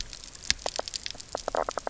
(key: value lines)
label: biophony, knock croak
recorder: SoundTrap 300